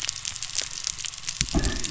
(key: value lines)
label: anthrophony, boat engine
recorder: SoundTrap 300